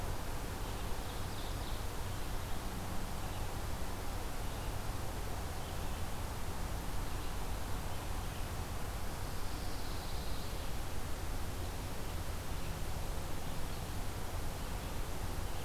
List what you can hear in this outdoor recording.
Red-eyed Vireo, Ovenbird, Pine Warbler